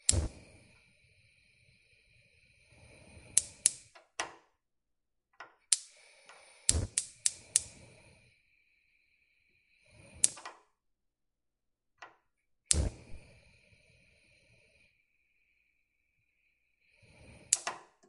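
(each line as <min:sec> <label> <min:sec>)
0:00.0 A lighter ignites. 0:00.3
0:03.4 Clicking sounds of an automatic gas stove ignition. 0:03.7
0:06.6 Clicking sounds of a gas stove ignition. 0:07.6
0:10.2 Clicking sounds of a gas stove ignition. 0:10.5
0:12.7 Clicking sounds of a gas stove ignition. 0:13.0
0:17.5 Clicking sounds of a gas stove ignition. 0:17.8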